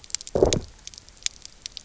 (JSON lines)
{"label": "biophony, low growl", "recorder": "SoundTrap 300"}